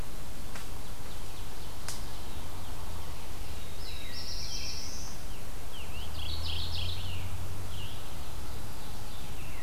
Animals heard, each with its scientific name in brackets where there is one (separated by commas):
Ovenbird (Seiurus aurocapilla), Black-throated Blue Warbler (Setophaga caerulescens), American Robin (Turdus migratorius), Mourning Warbler (Geothlypis philadelphia), Scarlet Tanager (Piranga olivacea)